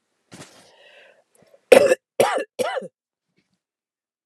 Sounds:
Cough